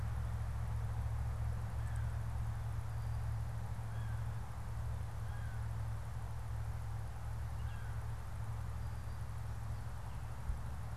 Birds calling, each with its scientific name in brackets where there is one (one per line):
American Crow (Corvus brachyrhynchos)